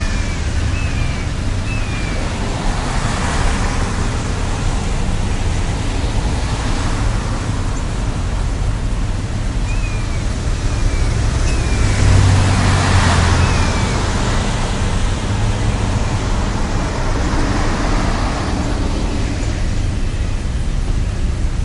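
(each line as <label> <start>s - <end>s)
A seagull emits a quiet squeal while passing by. 0.0s - 2.4s
The shrill engine noise of many vehicles passing on the highway. 0.0s - 21.6s
A car passes by in the distance with a soft rolling noise. 2.1s - 4.5s
A car passes by in the distance with a soft rolling noise. 6.1s - 8.0s
A bird chirps in the distance. 7.6s - 8.0s
A seagull emits a quiet squeal while passing by. 9.6s - 14.0s
A bird chirps in the distance. 11.3s - 11.7s
A truck passes by in the distance, creating a rolling noise. 11.8s - 14.1s
A truck passes by in the distance, creating a rolling noise. 17.0s - 19.1s
A bird chirps in the distance. 17.1s - 17.6s
A bird chirps in the distance. 18.5s - 19.8s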